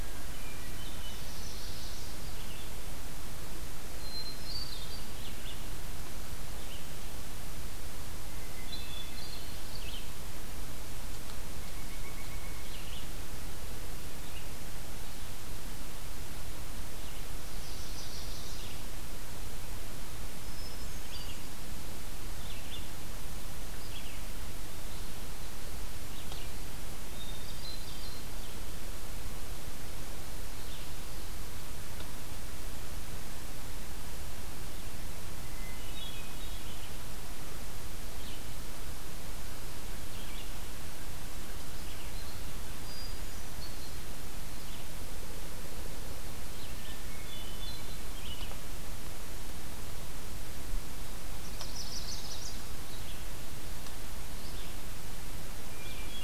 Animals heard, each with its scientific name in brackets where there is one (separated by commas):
Pileated Woodpecker (Dryocopus pileatus), Chestnut-sided Warbler (Setophaga pensylvanica), Hermit Thrush (Catharus guttatus), Red-eyed Vireo (Vireo olivaceus)